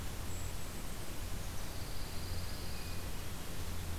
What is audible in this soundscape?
Golden-crowned Kinglet, Pine Warbler, Hermit Thrush